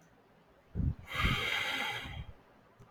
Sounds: Sigh